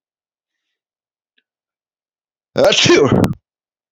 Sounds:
Sneeze